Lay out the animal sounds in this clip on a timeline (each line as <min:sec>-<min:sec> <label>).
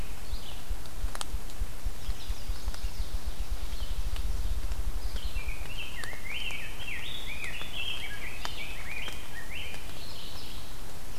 0:00.0-0:05.9 Ruffed Grouse (Bonasa umbellus)
0:00.0-0:11.2 Red-eyed Vireo (Vireo olivaceus)
0:01.7-0:03.2 Chestnut-sided Warbler (Setophaga pensylvanica)
0:05.2-0:09.7 Rose-breasted Grosbeak (Pheucticus ludovicianus)
0:09.7-0:10.8 Mourning Warbler (Geothlypis philadelphia)